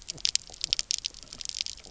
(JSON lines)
{"label": "biophony, knock croak", "recorder": "SoundTrap 300"}